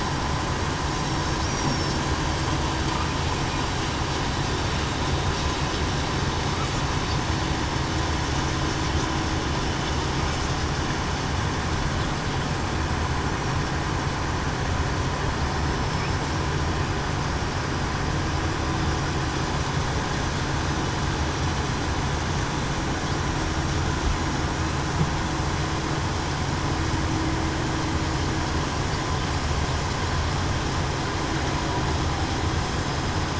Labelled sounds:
1.1	1.5	killer whale, southern resident, 5.46 to 5.53 kHz
15.8	16.2	killer whale, southern resident, 5.2 to 5.3 kHz

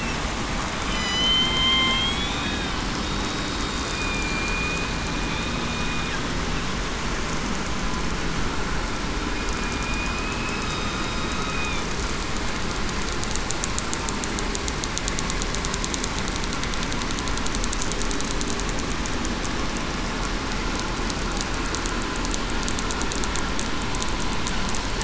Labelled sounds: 0.9	2.4	killer whale, southern resident, 0.98 to 6.1 kHz
3.0	4.2	killer whale, southern resident, 3.6 to 3.8 kHz
9.5	10.7	killer whale, southern resident, 2.4 to 2.6 kHz
11.2	11.5	killer whale, southern resident, 3.7 to 3.8 kHz

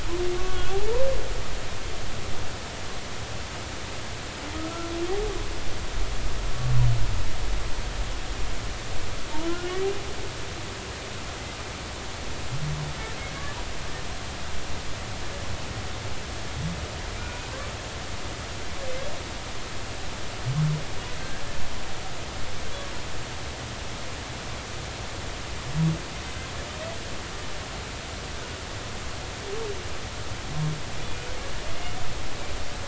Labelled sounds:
0.4	1.0	humpback whale, 0.80 to 1.6 kHz
4.5	4.9	humpback whale, 1.2 to 1.5 kHz
13.3	13.6	humpback whale, 1.6 to 1.8 kHz
31.1	31.3	humpback whale, 2.4 to 2.5 kHz

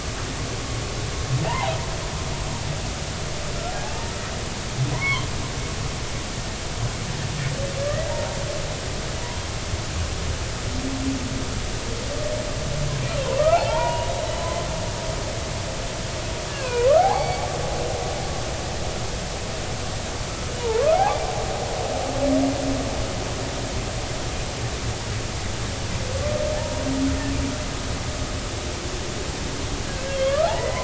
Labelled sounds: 1.4	1.8	humpback whale, 0.80 to 1.1 kHz
3.5	4.0	humpback whale, 0.80 to 1.4 kHz
4.9	5.3	humpback whale, 0.93 to 2.3 kHz
7.8	8.1	humpback whale, 1.6 to 2.0 kHz
13.4	14.1	humpback whale, 0.80 to 2.9 kHz
16.5	17.5	humpback whale, 0.80 to 4.6 kHz
20.6	21.2	humpback whale, 0.80 to 1.4 kHz
26.5	26.8	humpback whale, 0.80 to 0.99 kHz
30.1	30.8	humpback whale, 1.0 to 3.4 kHz

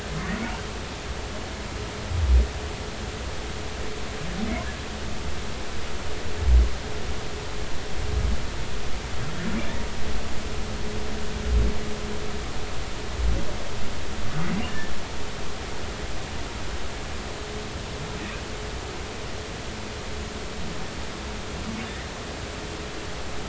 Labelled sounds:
14.7	14.9	humpback whale, 1.7 to 1.8 kHz

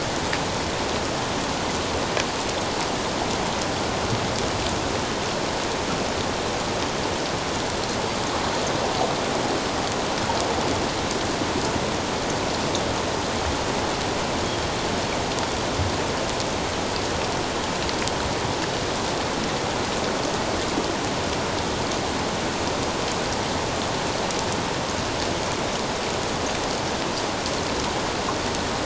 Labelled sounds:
14.4	14.7	Pacific white-sided dolphin, 3.2 to 3.3 kHz

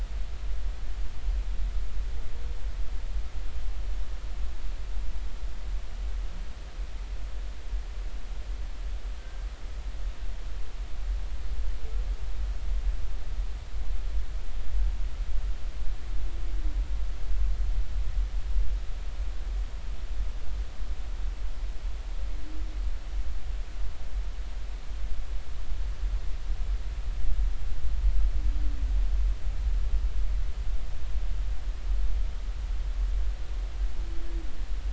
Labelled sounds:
9.2	9.5	humpback whale, 1.5 to 1.6 kHz

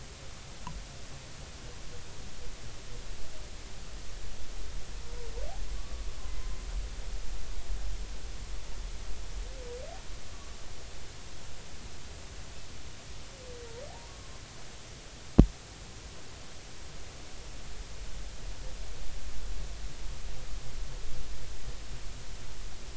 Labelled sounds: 5.8	6.0	humpback whale, 1.1 to 1.2 kHz
14.1	14.4	humpback whale, 1.0 to 1.2 kHz

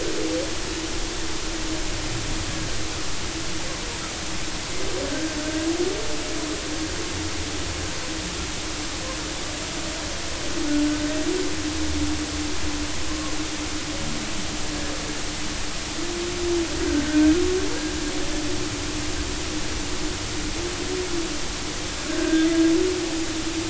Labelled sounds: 5.0	5.7	humpback whale, 1.5 to 1.7 kHz
13.1	13.3	humpback whale, 0.99 to 1.2 kHz
16.8	17.3	humpback whale, 1.4 to 1.7 kHz
22.0	22.5	humpback whale, 1.4 to 1.7 kHz

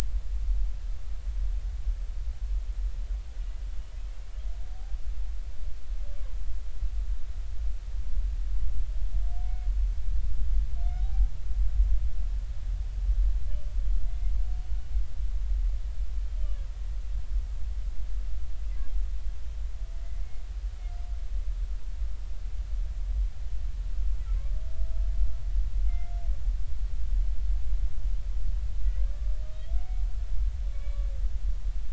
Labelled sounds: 9.4	9.7	humpback whale, 2.1 to 2.2 kHz
11.0	11.3	humpback whale, 0.80 to 0.83 kHz
14.1	14.3	humpback whale, 2.0 to 2.2 kHz
16.4	16.6	humpback whale, 2.8 to 3.1 kHz
25.9	26.1	humpback whale, 2.0 to 2.2 kHz
30.7	31.0	humpback whale, 2.2 to 2.3 kHz

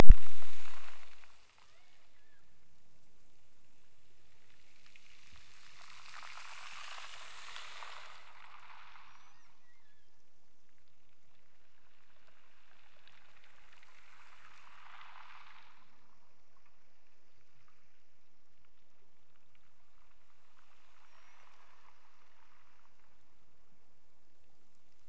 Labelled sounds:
1.6	2.6	killer whale, Bigg's (transient), Gulf of Alaska transient, 0.43 to 2.3 kHz
9.5	10.3	killer whale, Bigg's (transient), Gulf of Alaska transient, 1.4 to 3.7 kHz

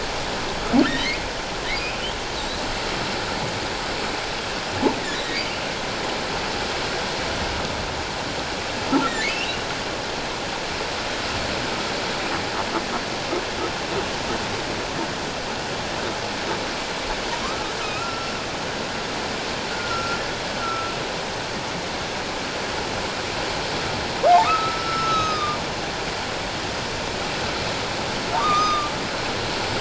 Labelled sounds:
0.8	1.3	humpback whale, 1.7 to 4.3 kHz
9.3	9.7	humpback whale, 2.4 to 3.1 kHz
17.4	18.4	humpback whale, 1.0 to 5.5 kHz
19.7	20.9	humpback whale, 1.3 to 1.6 kHz
24.4	25.6	humpback whale, 1.1 to 6.5 kHz
28.3	28.9	humpback whale, 0.88 to 6.3 kHz

